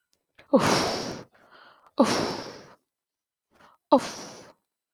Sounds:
Sigh